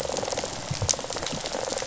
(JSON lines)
{"label": "biophony, rattle response", "recorder": "SoundTrap 500"}